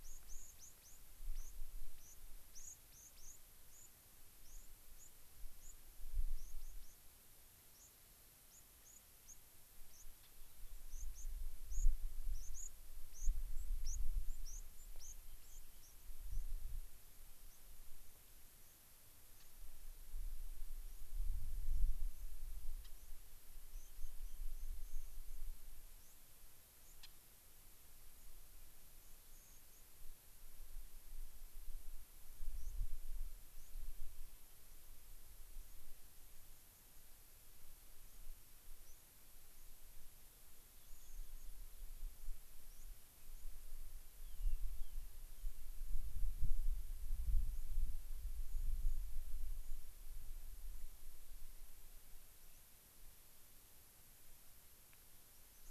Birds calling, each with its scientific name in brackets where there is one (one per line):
unidentified bird
White-crowned Sparrow (Zonotrichia leucophrys)
Rock Wren (Salpinctes obsoletus)